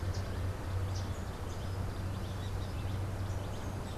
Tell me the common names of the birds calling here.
Yellow Warbler